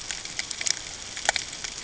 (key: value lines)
label: ambient
recorder: HydroMoth